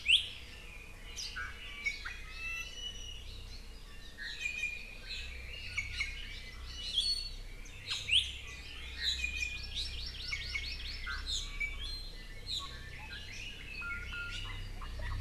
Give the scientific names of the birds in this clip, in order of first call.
Drepanis coccinea, Chlorodrepanis virens